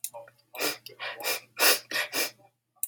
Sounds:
Sniff